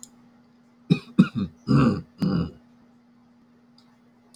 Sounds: Throat clearing